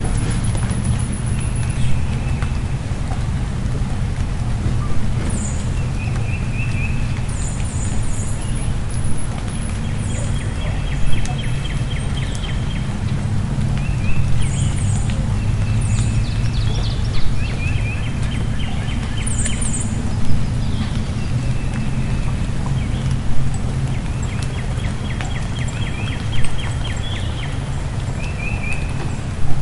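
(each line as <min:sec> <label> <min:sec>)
0:00.0 A bird chirping. 0:01.8
0:00.0 Birds are singing repeatedly. 0:29.5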